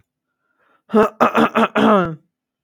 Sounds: Throat clearing